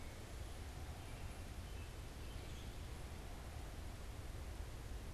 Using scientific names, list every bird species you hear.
Vireo olivaceus, Hylocichla mustelina